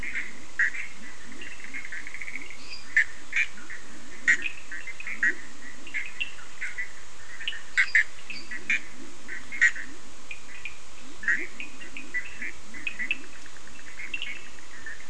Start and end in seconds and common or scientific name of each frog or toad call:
0.0	6.2	Leptodactylus latrans
0.0	15.0	Bischoff's tree frog
0.0	15.0	Cochran's lime tree frog
2.4	3.0	lesser tree frog
7.8	8.6	lesser tree frog
8.2	15.0	Leptodactylus latrans